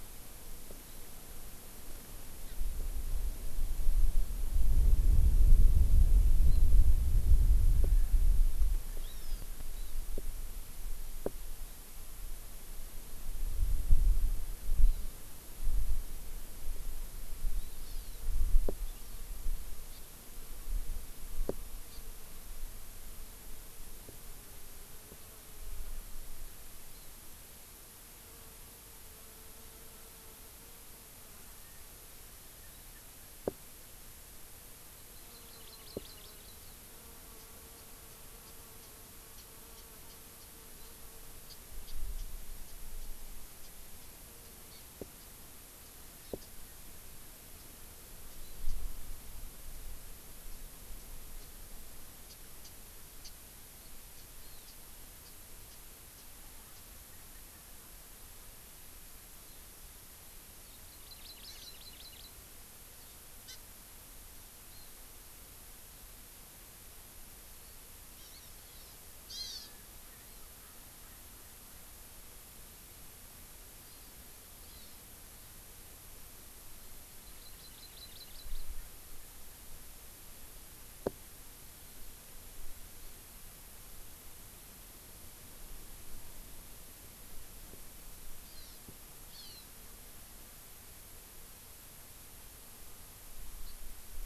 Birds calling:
Hawaii Amakihi (Chlorodrepanis virens)
Japanese Bush Warbler (Horornis diphone)
Warbling White-eye (Zosterops japonicus)

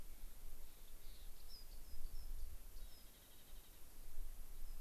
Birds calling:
unidentified bird
Clark's Nutcracker (Nucifraga columbiana)
Rock Wren (Salpinctes obsoletus)

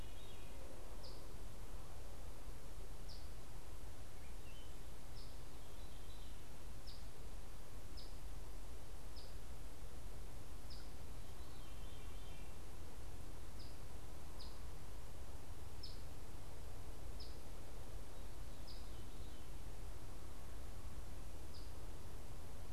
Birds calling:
Eastern Phoebe (Sayornis phoebe)

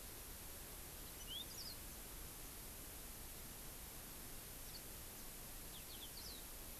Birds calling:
Yellow-fronted Canary (Crithagra mozambica)

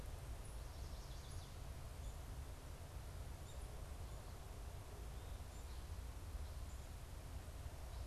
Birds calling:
Chestnut-sided Warbler (Setophaga pensylvanica)

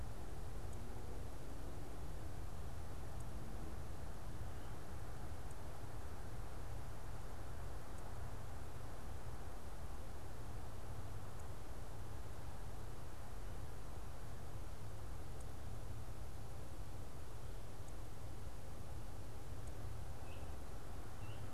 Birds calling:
Veery (Catharus fuscescens)

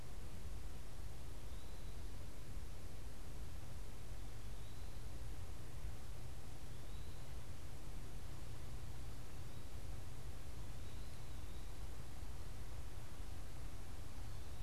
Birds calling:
Eastern Wood-Pewee (Contopus virens)

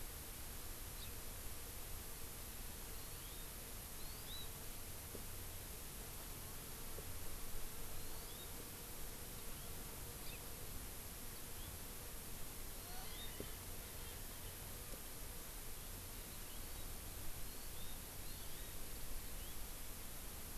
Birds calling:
Hawaii Amakihi (Chlorodrepanis virens)
Erckel's Francolin (Pternistis erckelii)

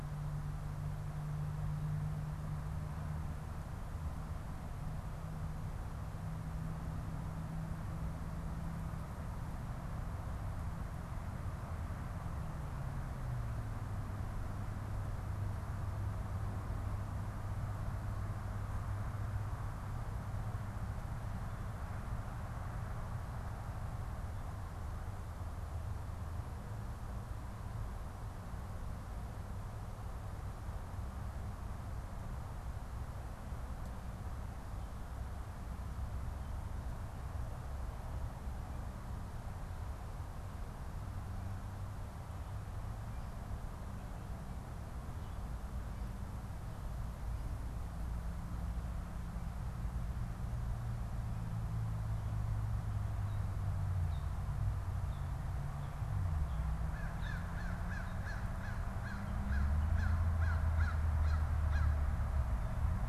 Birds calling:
American Crow (Corvus brachyrhynchos)

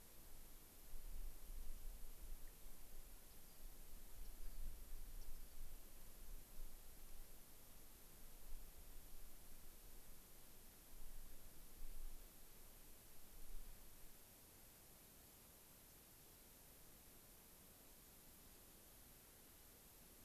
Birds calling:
Rock Wren (Salpinctes obsoletus)

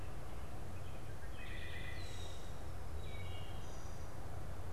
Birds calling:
Wood Thrush (Hylocichla mustelina)
Red-winged Blackbird (Agelaius phoeniceus)

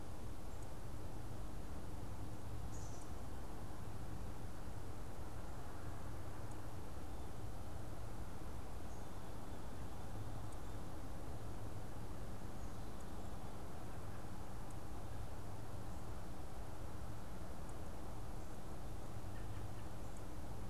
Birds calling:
Black-capped Chickadee (Poecile atricapillus)

